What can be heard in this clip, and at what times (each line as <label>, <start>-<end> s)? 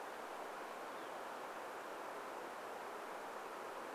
Northern Flicker call, 0-2 s